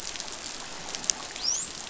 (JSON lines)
{"label": "biophony, dolphin", "recorder": "SoundTrap 500"}